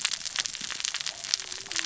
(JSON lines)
{"label": "biophony, cascading saw", "recorder": "SoundTrap 600 or HydroMoth"}